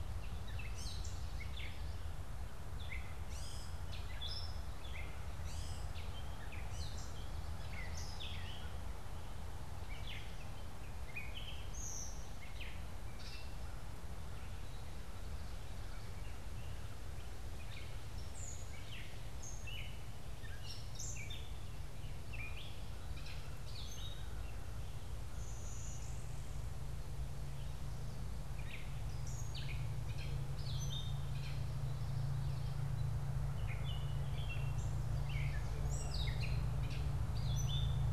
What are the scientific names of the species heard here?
Dumetella carolinensis, Vermivora cyanoptera